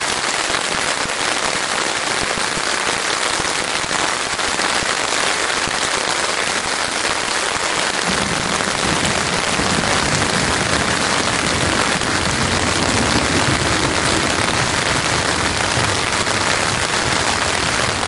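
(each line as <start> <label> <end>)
0.0 Heavy rain falling continuously in a natural outdoor environment. 18.1
8.5 A loud, low-pitched thunder rumbling continuously. 18.1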